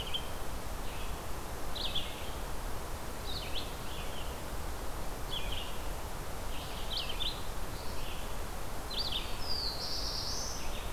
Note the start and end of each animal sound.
[0.00, 10.93] Red-eyed Vireo (Vireo olivaceus)
[9.36, 10.84] Black-throated Blue Warbler (Setophaga caerulescens)

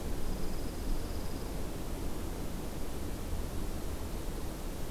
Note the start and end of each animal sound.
[0.00, 1.46] Dark-eyed Junco (Junco hyemalis)

